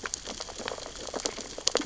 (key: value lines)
label: biophony, sea urchins (Echinidae)
recorder: SoundTrap 600 or HydroMoth